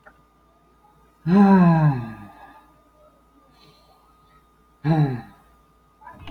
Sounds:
Sigh